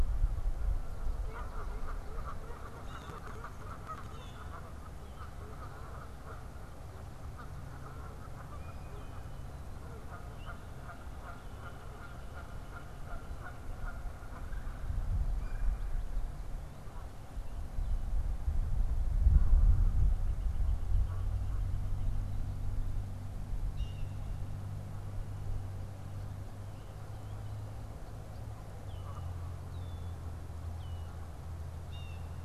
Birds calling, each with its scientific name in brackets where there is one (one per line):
Blue Jay (Cyanocitta cristata)
Canada Goose (Branta canadensis)
Red-winged Blackbird (Agelaius phoeniceus)
Red-bellied Woodpecker (Melanerpes carolinus)